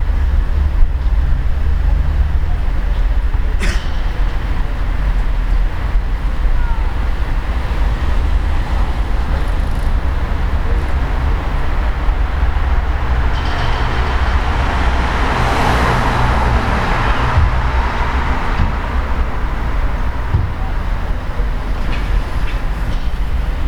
Does a lion roar?
no